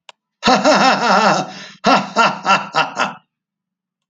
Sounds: Cough